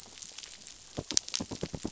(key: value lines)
label: biophony, knock
recorder: SoundTrap 500